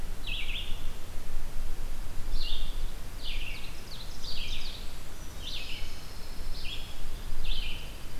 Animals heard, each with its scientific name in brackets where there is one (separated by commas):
Pine Warbler (Setophaga pinus), Dark-eyed Junco (Junco hyemalis), Red-eyed Vireo (Vireo olivaceus), Ovenbird (Seiurus aurocapilla)